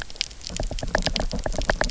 {"label": "biophony, knock", "recorder": "SoundTrap 300"}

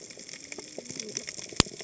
{"label": "biophony, cascading saw", "recorder": "HydroMoth"}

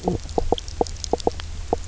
{"label": "biophony, knock croak", "recorder": "SoundTrap 300"}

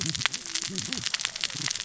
{"label": "biophony, cascading saw", "recorder": "SoundTrap 600 or HydroMoth"}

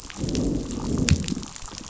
{"label": "biophony, growl", "recorder": "SoundTrap 500"}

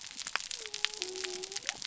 {"label": "biophony", "recorder": "SoundTrap 300"}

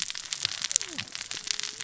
{"label": "biophony, cascading saw", "recorder": "SoundTrap 600 or HydroMoth"}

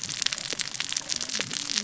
{"label": "biophony, cascading saw", "recorder": "SoundTrap 600 or HydroMoth"}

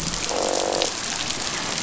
{"label": "biophony, croak", "recorder": "SoundTrap 500"}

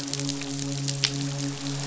{"label": "biophony, midshipman", "recorder": "SoundTrap 500"}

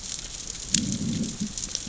{"label": "biophony, growl", "recorder": "SoundTrap 600 or HydroMoth"}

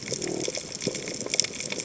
{"label": "biophony", "recorder": "HydroMoth"}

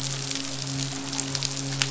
{"label": "biophony, midshipman", "recorder": "SoundTrap 500"}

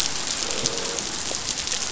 {"label": "biophony, croak", "recorder": "SoundTrap 500"}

